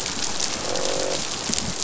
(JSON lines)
{"label": "biophony, croak", "recorder": "SoundTrap 500"}